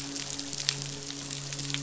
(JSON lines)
{"label": "biophony, midshipman", "recorder": "SoundTrap 500"}